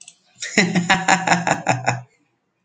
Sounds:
Laughter